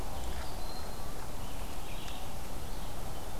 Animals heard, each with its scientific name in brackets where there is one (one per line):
Red-eyed Vireo (Vireo olivaceus)
Broad-winged Hawk (Buteo platypterus)